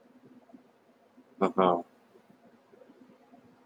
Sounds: Laughter